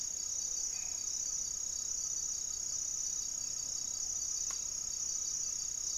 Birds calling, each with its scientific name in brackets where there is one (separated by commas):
Great Antshrike (Taraba major), Black-faced Antthrush (Formicarius analis), Hauxwell's Thrush (Turdus hauxwelli), Gray-fronted Dove (Leptotila rufaxilla)